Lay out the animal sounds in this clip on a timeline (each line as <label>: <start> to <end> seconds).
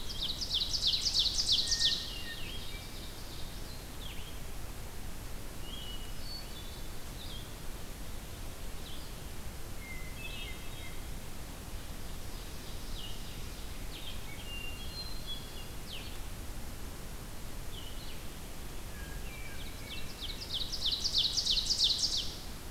Ovenbird (Seiurus aurocapilla): 0.0 to 3.9 seconds
Blue-headed Vireo (Vireo solitarius): 0.0 to 22.7 seconds
Hermit Thrush (Catharus guttatus): 1.7 to 3.0 seconds
Hermit Thrush (Catharus guttatus): 5.6 to 7.0 seconds
Hermit Thrush (Catharus guttatus): 9.7 to 11.1 seconds
Ovenbird (Seiurus aurocapilla): 11.6 to 14.0 seconds
Hermit Thrush (Catharus guttatus): 14.2 to 16.0 seconds
Hermit Thrush (Catharus guttatus): 18.8 to 20.5 seconds
Ovenbird (Seiurus aurocapilla): 19.2 to 22.3 seconds